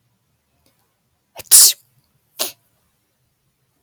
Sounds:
Sneeze